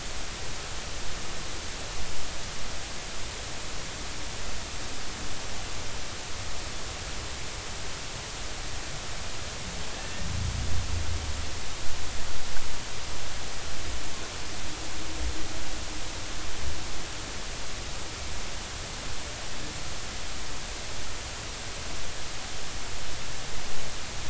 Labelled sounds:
10.0	10.3	humpback whale, 1.7 to 1.9 kHz

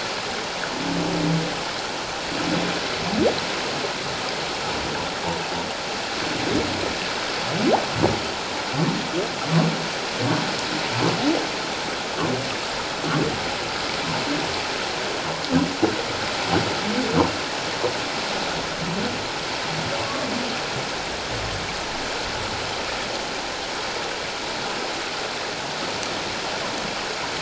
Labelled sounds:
20.0	20.3	humpback whale, 1.0 to 1.2 kHz

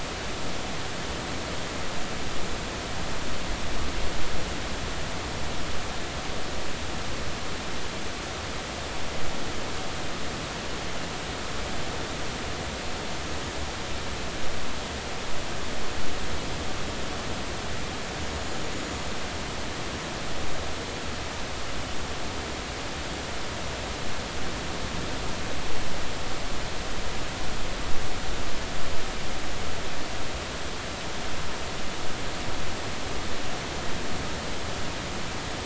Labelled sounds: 18.2	18.7	small unidentified odontocete, 6.7 to 7.0 kHz

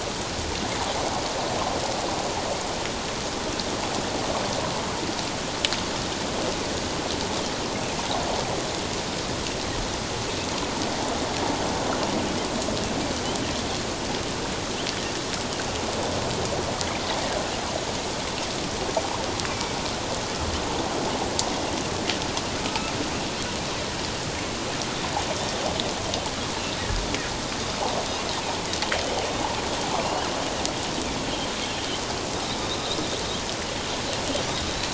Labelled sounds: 19.5	19.7	Pacific white-sided dolphin, 2.2 to 2.5 kHz
22.6	22.9	Pacific white-sided dolphin, 1.2 to 1.4 kHz
30.0	30.3	Pacific white-sided dolphin, 2.7 to 3.3 kHz

